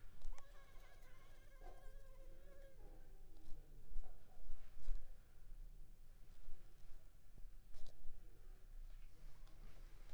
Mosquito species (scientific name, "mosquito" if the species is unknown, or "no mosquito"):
Anopheles arabiensis